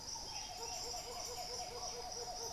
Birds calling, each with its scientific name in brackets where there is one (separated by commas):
White-winged Becard (Pachyramphus polychopterus), Buff-throated Saltator (Saltator maximus)